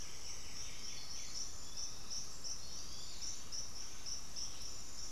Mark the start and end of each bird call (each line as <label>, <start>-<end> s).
White-winged Becard (Pachyramphus polychopterus), 0.0-1.8 s
unidentified bird, 1.3-3.7 s